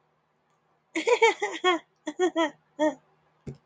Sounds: Laughter